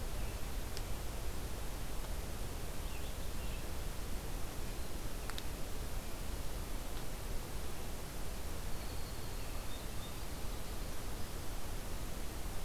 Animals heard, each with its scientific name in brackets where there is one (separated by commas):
Red-eyed Vireo (Vireo olivaceus), Winter Wren (Troglodytes hiemalis)